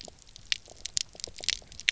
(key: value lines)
label: biophony, pulse
recorder: SoundTrap 300